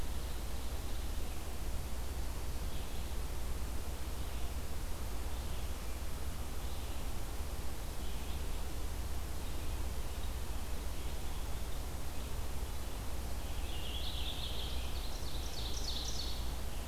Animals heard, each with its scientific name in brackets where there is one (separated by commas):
Ovenbird (Seiurus aurocapilla), Red-eyed Vireo (Vireo olivaceus), Purple Finch (Haemorhous purpureus)